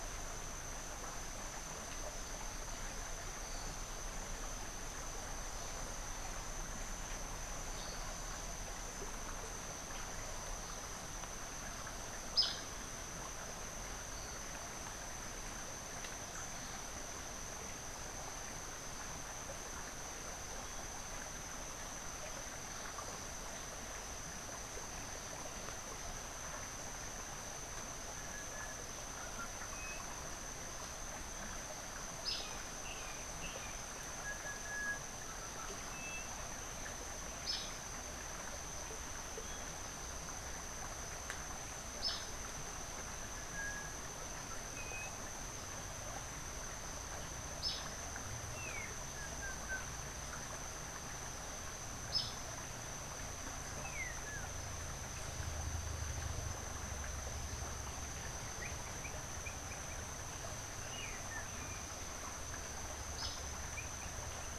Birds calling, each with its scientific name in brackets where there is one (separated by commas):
unidentified bird, Brown Jay (Psilorhinus morio)